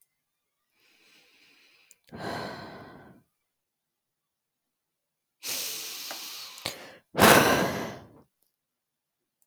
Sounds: Sigh